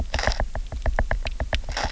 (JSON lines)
{"label": "biophony, knock", "recorder": "SoundTrap 300"}